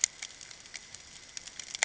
{"label": "ambient", "recorder": "HydroMoth"}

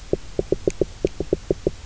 {"label": "biophony, knock", "recorder": "SoundTrap 300"}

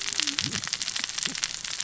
{"label": "biophony, cascading saw", "recorder": "SoundTrap 600 or HydroMoth"}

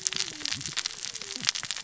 {"label": "biophony, cascading saw", "recorder": "SoundTrap 600 or HydroMoth"}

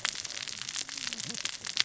{"label": "biophony, cascading saw", "recorder": "SoundTrap 600 or HydroMoth"}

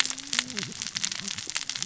{"label": "biophony, cascading saw", "recorder": "SoundTrap 600 or HydroMoth"}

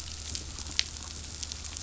{"label": "anthrophony, boat engine", "recorder": "SoundTrap 500"}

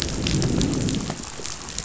{"label": "biophony, growl", "recorder": "SoundTrap 500"}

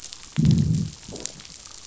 {"label": "biophony, growl", "recorder": "SoundTrap 500"}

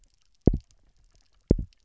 {"label": "biophony, double pulse", "recorder": "SoundTrap 300"}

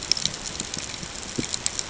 {"label": "ambient", "recorder": "HydroMoth"}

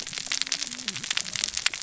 {"label": "biophony, cascading saw", "recorder": "SoundTrap 600 or HydroMoth"}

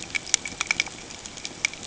{"label": "ambient", "recorder": "HydroMoth"}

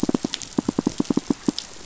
{"label": "biophony, pulse", "recorder": "SoundTrap 500"}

